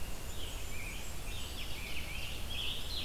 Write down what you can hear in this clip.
Blackburnian Warbler, Red-eyed Vireo, Scarlet Tanager